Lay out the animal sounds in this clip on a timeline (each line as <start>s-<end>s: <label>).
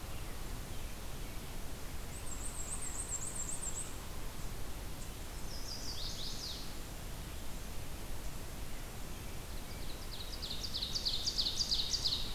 1.9s-4.4s: Black-and-white Warbler (Mniotilta varia)
5.3s-6.8s: Chestnut-sided Warbler (Setophaga pensylvanica)
9.5s-12.3s: Ovenbird (Seiurus aurocapilla)